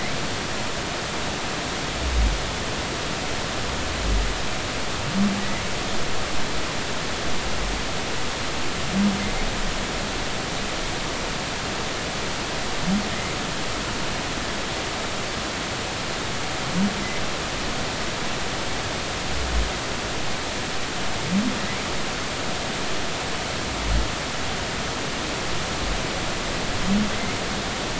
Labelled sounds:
5.4	5.7	humpback whale, 1.9 to 2.3 kHz

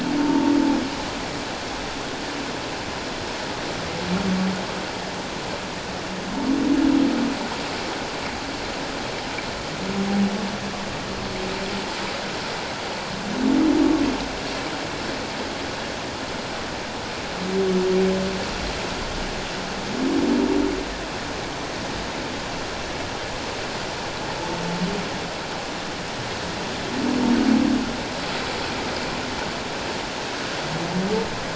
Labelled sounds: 0.2	0.5	humpback whale, 0.88 to 0.97 kHz

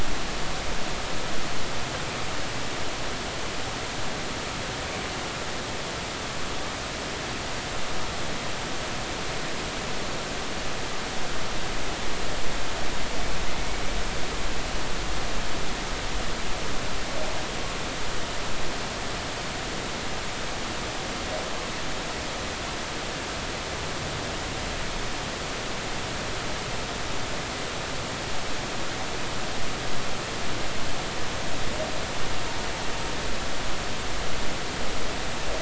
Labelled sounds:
13.5	13.8	humpback whale, 2.0 to 2.3 kHz

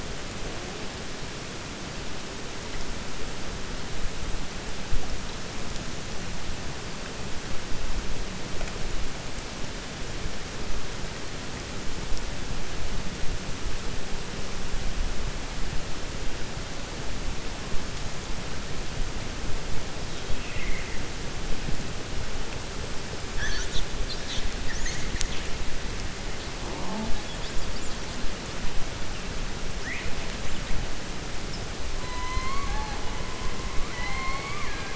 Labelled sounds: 20.3	21.0	killer whale, 1.9 to 2.9 kHz
33.8	34.9	killer whale, 0.77 to 4.4 kHz

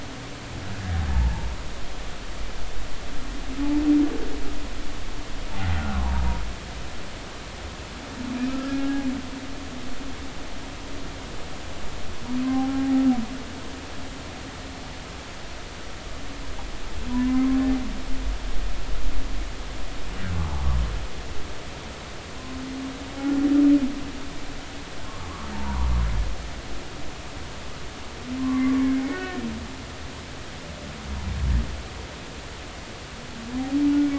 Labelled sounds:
1.1	1.5	humpback whale, 0.80 to 0.99 kHz
5.5	6.2	humpback whale, 0.80 to 1.5 kHz
8.5	9.1	humpback whale, 0.80 to 1.7 kHz
12.4	12.8	humpback whale, 0.80 to 1.1 kHz
17.1	17.6	humpback whale, 0.93 to 2.2 kHz
25.5	25.9	humpback whale, 0.83 to 1.2 kHz
28.8	29.7	humpback whale, 0.99 to 1.9 kHz

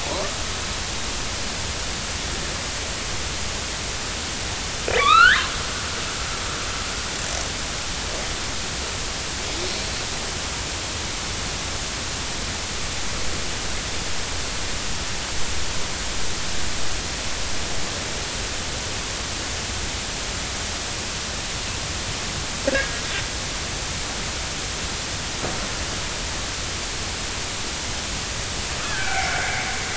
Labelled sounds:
5.0	5.5	killer whale, northern resident, A clan, AB subclan, 1.0 to 4.5 kHz
22.7	23.0	killer whale, northern resident, A clan, AB subclan, 1.5 to 1.8 kHz
28.8	29.3	killer whale, northern resident, A clan, AB subclan, 1.4 to 2.4 kHz

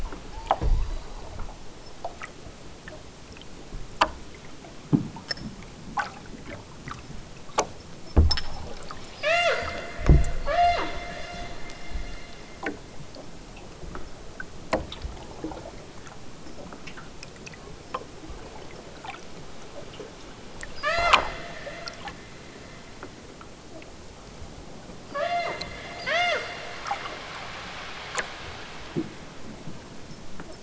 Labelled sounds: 0.4	1.1	killer whale, southern Alaska resident, 1.5 to 5.3 kHz
9.1	9.7	killer whale, southern Alaska resident, 0.32 to 8.0 kHz
10.4	10.9	killer whale, southern Alaska resident, 0.50 to 8.0 kHz
20.8	21.2	killer whale, southern Alaska resident, 0.23 to 8.0 kHz
25.1	25.7	killer whale, southern Alaska resident, 0.23 to 8.0 kHz
26.0	26.5	killer whale, southern Alaska resident, 0.32 to 8.0 kHz

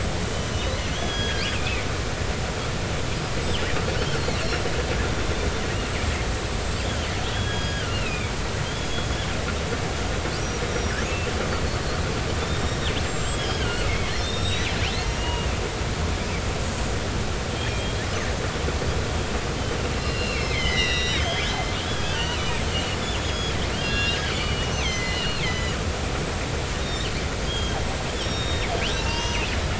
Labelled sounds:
0.0	1.9	killer whale, northern resident, 1.6 to 7.9 kHz
3.4	4.4	killer whale, northern resident, 2.7 to 4.5 kHz
5.5	6.2	killer whale, northern resident, 7.5 to 8.0 kHz
6.6	9.1	killer whale, northern resident, 1.3 to 7.6 kHz
10.7	11.0	killer whale, northern resident, 5.5 to 5.8 kHz
12.4	14.7	killer whale, northern resident, 1.4 to 8.0 kHz
15.1	15.5	killer whale, northern resident, 2.8 to 6.8 kHz
17.5	18.0	killer whale, northern resident, 2.3 to 3.4 kHz
19.9	27.8	killer whale, northern resident, 1.4 to 6.8 kHz
28.2	29.5	killer whale, northern resident, 0.83 to 5.9 kHz

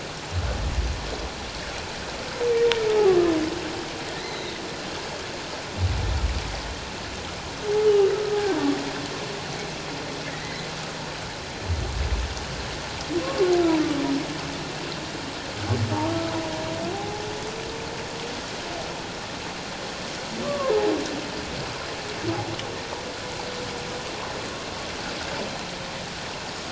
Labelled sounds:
4.2	4.6	humpback whale, 1.9 to 4.2 kHz
7.9	8.1	humpback whale, 2.8 to 3.1 kHz
10.3	10.7	humpback whale, 1.8 to 2.1 kHz
16.9	17.3	humpback whale, 0.78 to 0.88 kHz
20.4	20.9	humpback whale, 0.81 to 1.2 kHz

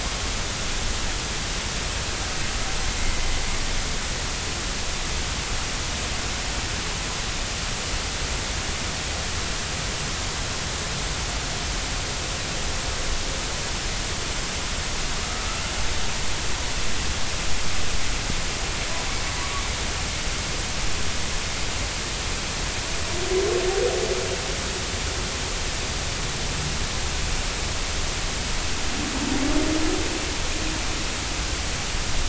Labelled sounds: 3.0	3.4	humpback whale, 2.0 to 2.2 kHz

